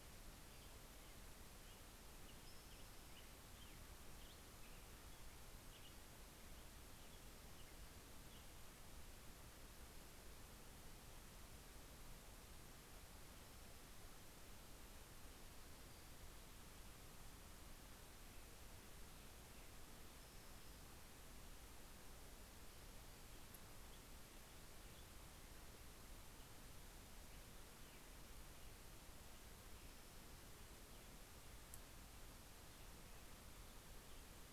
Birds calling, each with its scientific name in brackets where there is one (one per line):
American Robin (Turdus migratorius)
Spotted Towhee (Pipilo maculatus)